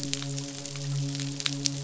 {"label": "biophony, midshipman", "recorder": "SoundTrap 500"}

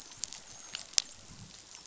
{"label": "biophony, dolphin", "recorder": "SoundTrap 500"}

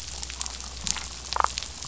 {"label": "biophony, damselfish", "recorder": "SoundTrap 500"}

